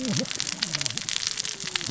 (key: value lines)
label: biophony, cascading saw
recorder: SoundTrap 600 or HydroMoth